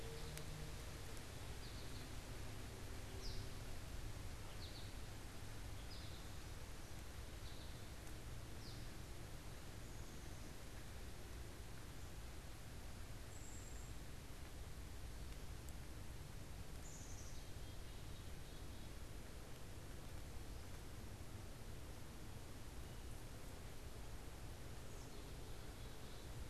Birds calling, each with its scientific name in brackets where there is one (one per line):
American Goldfinch (Spinus tristis)
Cedar Waxwing (Bombycilla cedrorum)
Black-capped Chickadee (Poecile atricapillus)